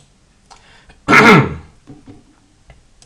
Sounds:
Throat clearing